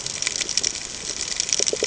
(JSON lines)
{"label": "ambient", "recorder": "HydroMoth"}